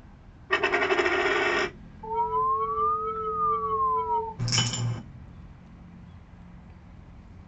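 A quiet steady noise continues about 25 decibels below the sounds. At 0.49 seconds, a coin drops. Then, at 2.03 seconds, an alarm can be heard. Next, at 4.38 seconds, a coin drops.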